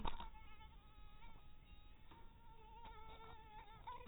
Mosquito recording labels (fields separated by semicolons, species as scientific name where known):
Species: mosquito; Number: one; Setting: cup